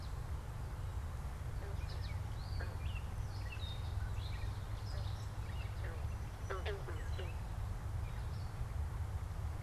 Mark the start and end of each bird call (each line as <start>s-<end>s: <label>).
0.0s-6.0s: American Goldfinch (Spinus tristis)
1.3s-7.7s: unidentified bird